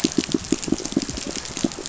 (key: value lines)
label: biophony, pulse
recorder: SoundTrap 500